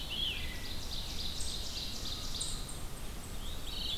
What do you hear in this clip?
Red-eyed Vireo, Ovenbird, Veery